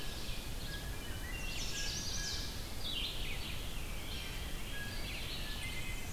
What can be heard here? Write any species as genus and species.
Seiurus aurocapilla, Vireo olivaceus, Cyanocitta cristata, Hylocichla mustelina, Setophaga pensylvanica